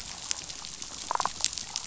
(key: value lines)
label: biophony, damselfish
recorder: SoundTrap 500